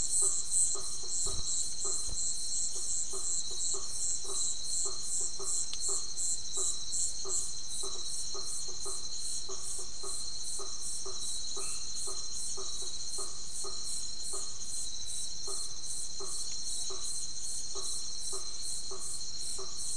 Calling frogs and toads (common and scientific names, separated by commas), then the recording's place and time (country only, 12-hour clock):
blacksmith tree frog (Boana faber)
Brazil, 10:30pm